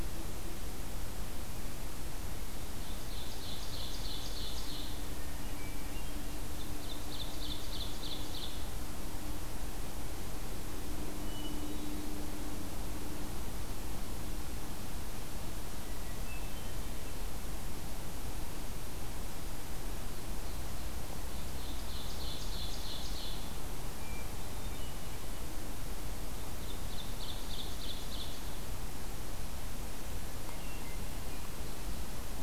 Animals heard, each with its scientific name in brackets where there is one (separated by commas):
Hermit Thrush (Catharus guttatus), Ovenbird (Seiurus aurocapilla)